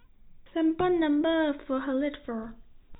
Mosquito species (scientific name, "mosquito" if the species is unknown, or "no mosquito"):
no mosquito